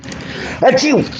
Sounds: Sneeze